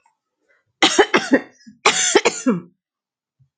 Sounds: Cough